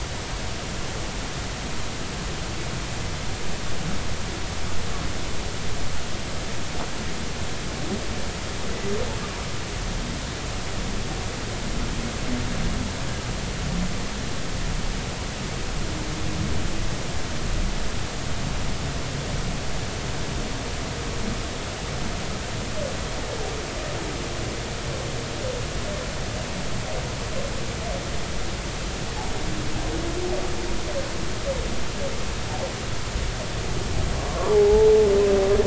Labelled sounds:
34.3	34.9	humpback whale, 0.80 to 1.2 kHz

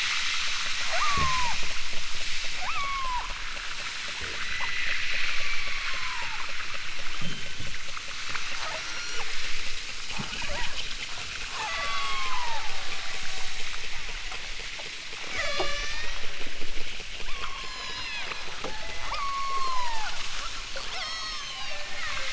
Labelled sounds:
0.9	1.6	killer whale, southern Alaska resident, 0.32 to 1.5 kHz
2.6	3.3	killer whale, southern Alaska resident, 0.55 to 8.0 kHz
4.4	6.4	killer whale, southern Alaska resident, 0.64 to 5.2 kHz
7.2	7.8	killer whale, southern Alaska resident, 1.1 to 3.6 kHz
8.7	9.3	killer whale, southern Alaska resident, 3.5 to 8.0 kHz
10.4	10.9	killer whale, southern Alaska resident, 0.34 to 1.8 kHz
11.5	14.3	killer whale, southern Alaska resident, 0.37 to 7.8 kHz
15.3	16.2	killer whale, southern Alaska resident, 0.32 to 8.0 kHz
17.3	20.2	killer whale, southern Alaska resident, 0.28 to 8.0 kHz
20.9	22.3	killer whale, southern Alaska resident, 0.32 to 8.0 kHz

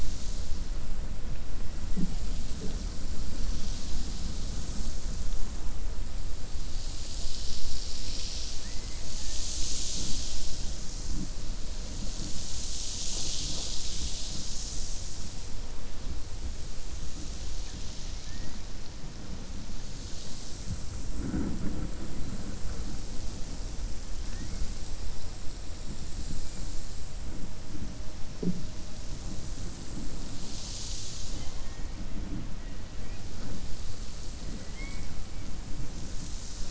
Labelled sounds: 8.5	9.0	killer whale, 1.7 to 2.5 kHz
34.4	35.1	killer whale, 0.49 to 3.4 kHz

